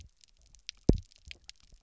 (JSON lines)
{"label": "biophony, double pulse", "recorder": "SoundTrap 300"}